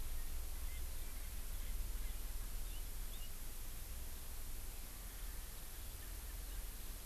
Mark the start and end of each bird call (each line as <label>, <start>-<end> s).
Erckel's Francolin (Pternistis erckelii), 0.5-2.6 s
Hawaii Amakihi (Chlorodrepanis virens), 2.6-2.8 s
Hawaii Amakihi (Chlorodrepanis virens), 3.1-3.3 s